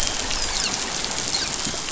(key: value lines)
label: biophony, dolphin
recorder: SoundTrap 500